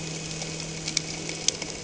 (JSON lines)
{"label": "anthrophony, boat engine", "recorder": "HydroMoth"}